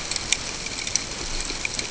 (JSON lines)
{"label": "ambient", "recorder": "HydroMoth"}